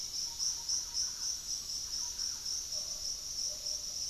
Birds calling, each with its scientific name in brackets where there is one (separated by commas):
Thrush-like Wren (Campylorhynchus turdinus)